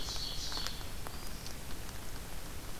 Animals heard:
Black-throated Green Warbler (Setophaga virens), Ovenbird (Seiurus aurocapilla)

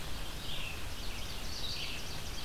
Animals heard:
Red-eyed Vireo (Vireo olivaceus), Ovenbird (Seiurus aurocapilla)

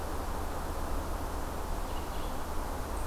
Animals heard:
Red-eyed Vireo (Vireo olivaceus)

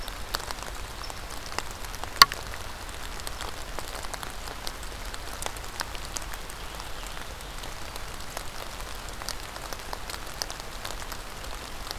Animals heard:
unknown mammal

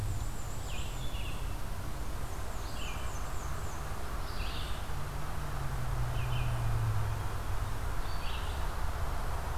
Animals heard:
Red-eyed Vireo (Vireo olivaceus), Black-and-white Warbler (Mniotilta varia)

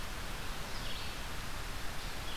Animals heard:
Red-eyed Vireo (Vireo olivaceus)

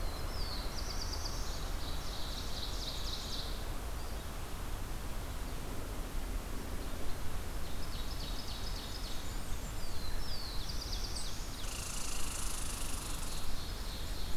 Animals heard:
Red-eyed Vireo (Vireo olivaceus), Ovenbird (Seiurus aurocapilla), Black-throated Blue Warbler (Setophaga caerulescens), Red Squirrel (Tamiasciurus hudsonicus), Blackburnian Warbler (Setophaga fusca)

